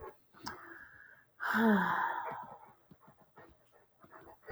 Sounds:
Sigh